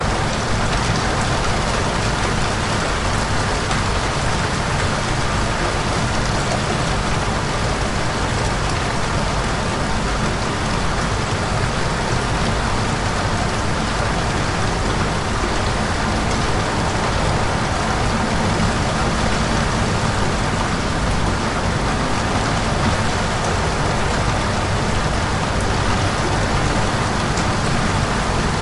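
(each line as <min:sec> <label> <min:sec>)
0:00.0 Rain falling in a quiet environment. 0:28.6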